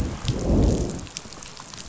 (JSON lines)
{"label": "biophony, growl", "recorder": "SoundTrap 500"}